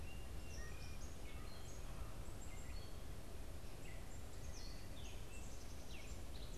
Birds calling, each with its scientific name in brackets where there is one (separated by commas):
Black-capped Chickadee (Poecile atricapillus), Gray Catbird (Dumetella carolinensis)